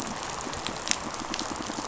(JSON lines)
{"label": "biophony, rattle response", "recorder": "SoundTrap 500"}